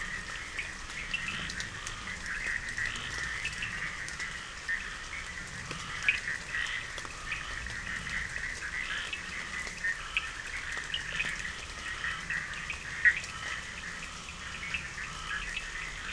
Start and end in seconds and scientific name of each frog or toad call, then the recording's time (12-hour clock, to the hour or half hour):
0.0	16.1	Boana bischoffi
0.0	16.1	Scinax perereca
0.5	3.8	Sphaenorhynchus surdus
5.9	16.1	Sphaenorhynchus surdus
2am